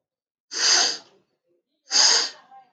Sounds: Sniff